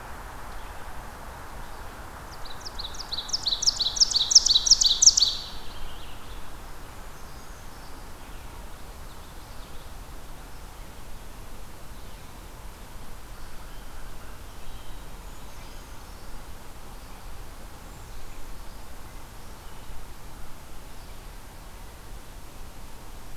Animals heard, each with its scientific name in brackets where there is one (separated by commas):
Brown Creeper (Certhia americana), Ovenbird (Seiurus aurocapilla), Purple Finch (Haemorhous purpureus), Common Yellowthroat (Geothlypis trichas)